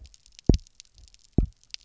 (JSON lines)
{"label": "biophony, double pulse", "recorder": "SoundTrap 300"}